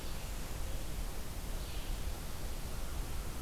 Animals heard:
forest ambience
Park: Marsh-Billings-Rockefeller National Historical Park